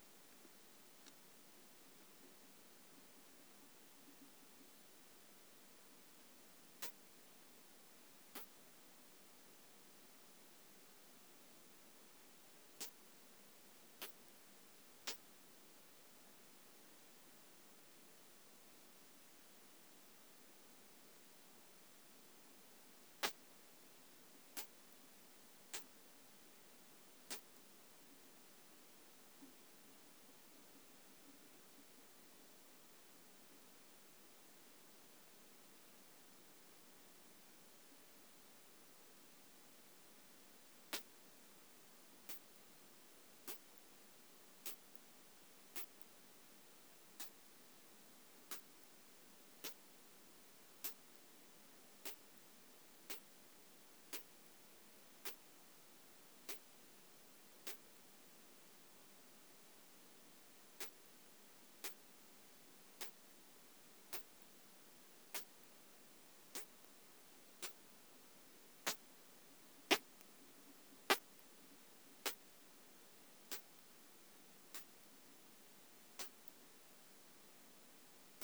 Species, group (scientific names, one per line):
Isophya pyrenaea
Orthoptera